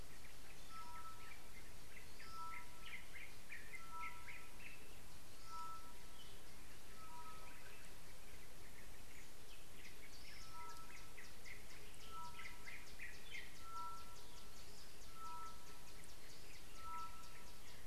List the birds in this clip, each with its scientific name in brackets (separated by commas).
Tropical Boubou (Laniarius major), Yellow-whiskered Greenbul (Eurillas latirostris)